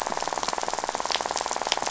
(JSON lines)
{"label": "biophony, rattle", "recorder": "SoundTrap 500"}